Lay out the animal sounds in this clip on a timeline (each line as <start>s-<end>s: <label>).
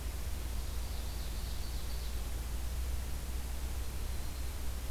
0.1s-2.6s: Ovenbird (Seiurus aurocapilla)